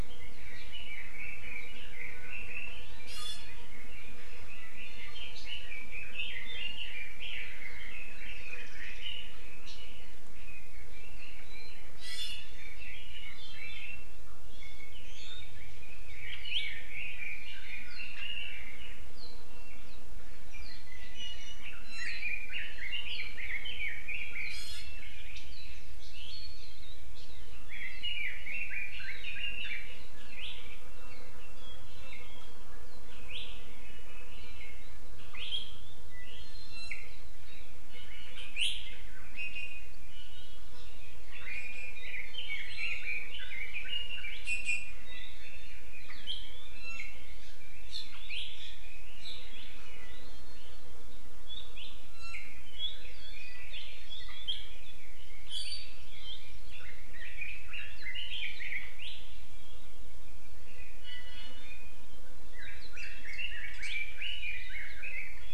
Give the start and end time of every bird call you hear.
0.0s-2.8s: Red-billed Leiothrix (Leiothrix lutea)
3.0s-3.5s: Iiwi (Drepanis coccinea)
3.7s-14.1s: Red-billed Leiothrix (Leiothrix lutea)
4.8s-5.3s: Iiwi (Drepanis coccinea)
8.5s-9.0s: Warbling White-eye (Zosterops japonicus)
11.9s-12.4s: Iiwi (Drepanis coccinea)
16.0s-19.0s: Red-billed Leiothrix (Leiothrix lutea)
20.5s-25.3s: Red-billed Leiothrix (Leiothrix lutea)
21.1s-22.1s: Iiwi (Drepanis coccinea)
24.5s-25.0s: Iiwi (Drepanis coccinea)
27.6s-29.9s: Red-billed Leiothrix (Leiothrix lutea)
36.3s-37.1s: Iiwi (Drepanis coccinea)
37.9s-38.3s: Iiwi (Drepanis coccinea)
39.3s-40.6s: Iiwi (Drepanis coccinea)
41.3s-44.3s: Red-billed Leiothrix (Leiothrix lutea)
42.5s-43.3s: Iiwi (Drepanis coccinea)
44.4s-45.0s: Iiwi (Drepanis coccinea)
45.3s-45.8s: Iiwi (Drepanis coccinea)
46.7s-47.1s: Iiwi (Drepanis coccinea)
52.0s-52.5s: Iiwi (Drepanis coccinea)
57.1s-59.2s: Red-billed Leiothrix (Leiothrix lutea)
60.9s-62.0s: Iiwi (Drepanis coccinea)
62.5s-65.4s: Red-billed Leiothrix (Leiothrix lutea)

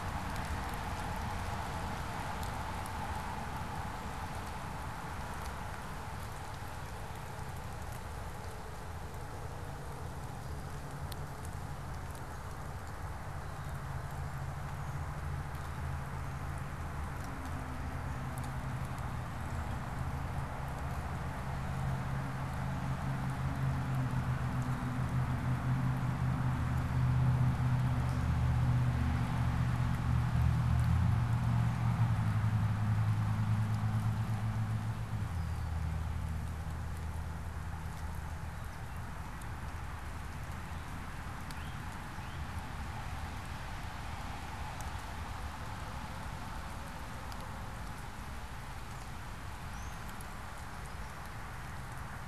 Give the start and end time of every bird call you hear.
41.2s-42.6s: Eastern Towhee (Pipilo erythrophthalmus)

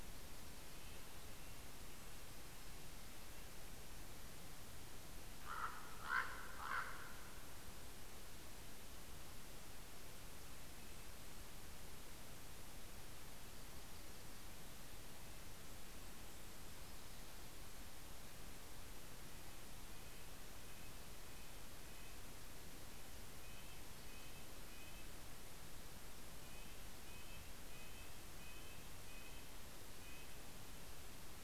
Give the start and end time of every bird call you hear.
0.4s-4.3s: Red-breasted Nuthatch (Sitta canadensis)
4.9s-7.6s: Common Raven (Corvus corax)
12.8s-17.9s: Yellow-rumped Warbler (Setophaga coronata)
13.5s-17.2s: Red-breasted Nuthatch (Sitta canadensis)
14.9s-17.5s: Golden-crowned Kinglet (Regulus satrapa)
19.2s-25.3s: Red-breasted Nuthatch (Sitta canadensis)
26.1s-30.3s: Red-breasted Nuthatch (Sitta canadensis)

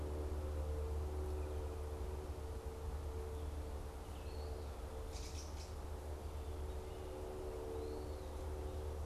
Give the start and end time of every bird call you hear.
0.0s-9.1s: Eastern Wood-Pewee (Contopus virens)
5.1s-5.9s: Gray Catbird (Dumetella carolinensis)

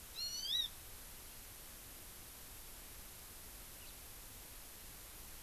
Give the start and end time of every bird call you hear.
0.1s-0.6s: Hawaii Amakihi (Chlorodrepanis virens)
3.8s-3.9s: House Finch (Haemorhous mexicanus)

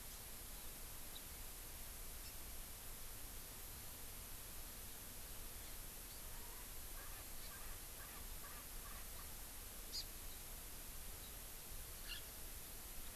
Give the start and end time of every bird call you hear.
6.3s-9.3s: Erckel's Francolin (Pternistis erckelii)
9.9s-10.1s: Hawaii Amakihi (Chlorodrepanis virens)

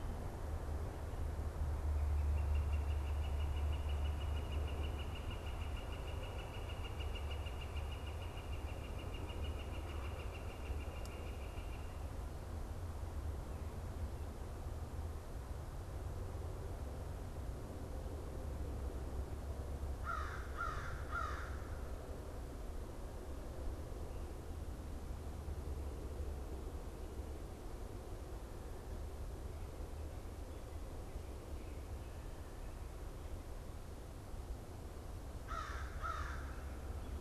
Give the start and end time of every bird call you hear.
1.6s-12.7s: Northern Flicker (Colaptes auratus)
19.8s-22.1s: American Crow (Corvus brachyrhynchos)
35.3s-36.6s: American Crow (Corvus brachyrhynchos)

